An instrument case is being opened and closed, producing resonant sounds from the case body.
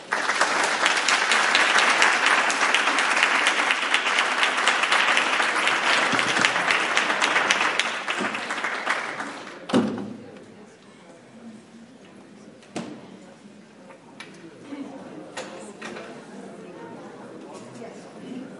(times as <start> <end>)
9.7 10.1